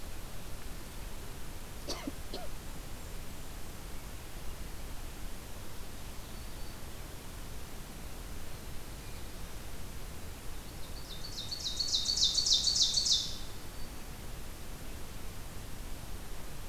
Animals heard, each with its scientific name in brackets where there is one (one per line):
Ovenbird (Seiurus aurocapilla)
Black-throated Green Warbler (Setophaga virens)